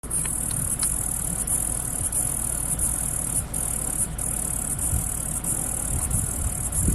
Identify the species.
Atrapsalta furcilla